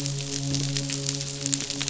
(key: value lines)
label: biophony, midshipman
recorder: SoundTrap 500